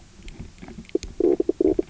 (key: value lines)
label: biophony, knock croak
recorder: SoundTrap 300